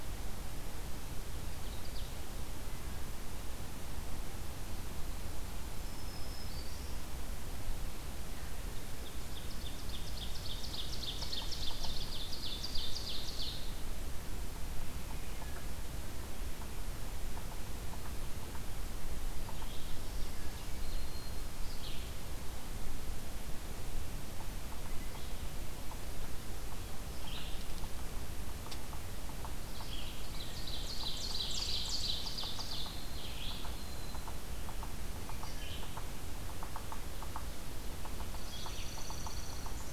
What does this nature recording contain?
Ovenbird, Black-throated Green Warbler, Yellow-bellied Sapsucker, Red-eyed Vireo, Dark-eyed Junco